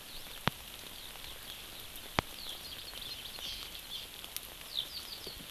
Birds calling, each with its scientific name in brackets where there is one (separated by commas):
Hawaii Amakihi (Chlorodrepanis virens), Eurasian Skylark (Alauda arvensis)